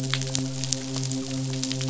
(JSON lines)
{"label": "biophony, midshipman", "recorder": "SoundTrap 500"}